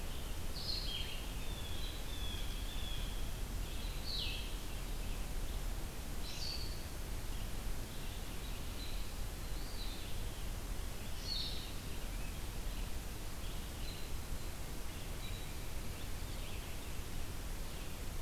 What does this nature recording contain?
Blue-headed Vireo, Blue Jay, Eastern Wood-Pewee